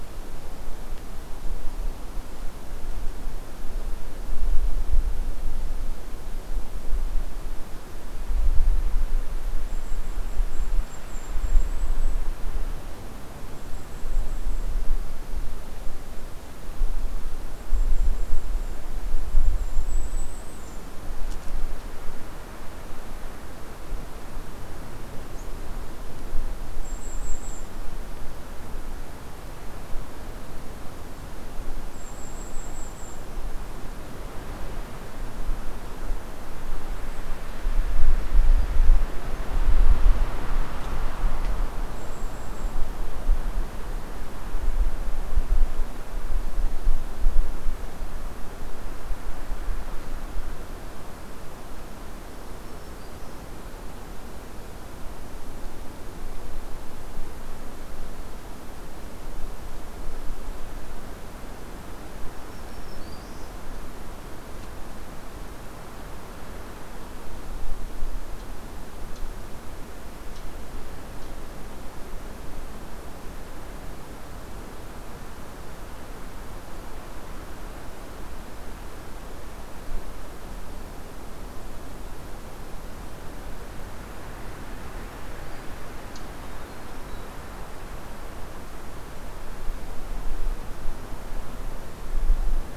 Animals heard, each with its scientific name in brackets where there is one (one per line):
Black-throated Green Warbler (Setophaga virens)
Golden-crowned Kinglet (Regulus satrapa)